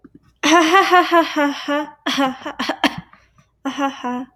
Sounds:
Laughter